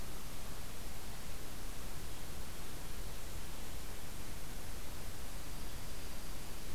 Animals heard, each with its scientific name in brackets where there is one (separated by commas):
Dark-eyed Junco (Junco hyemalis)